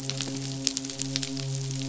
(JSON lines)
{"label": "biophony, midshipman", "recorder": "SoundTrap 500"}